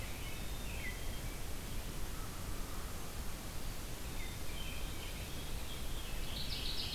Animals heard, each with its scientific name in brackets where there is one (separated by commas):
Veery (Catharus fuscescens), American Robin (Turdus migratorius), Mourning Warbler (Geothlypis philadelphia), American Crow (Corvus brachyrhynchos), Black-capped Chickadee (Poecile atricapillus)